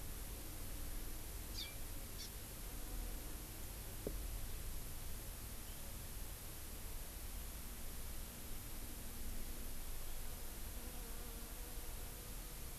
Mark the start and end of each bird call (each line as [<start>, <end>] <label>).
[1.56, 1.76] Hawaii Amakihi (Chlorodrepanis virens)
[2.16, 2.26] Hawaii Amakihi (Chlorodrepanis virens)